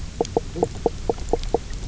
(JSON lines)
{"label": "biophony, knock croak", "recorder": "SoundTrap 300"}